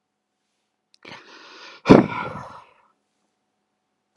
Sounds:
Sigh